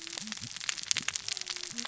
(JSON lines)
{"label": "biophony, cascading saw", "recorder": "SoundTrap 600 or HydroMoth"}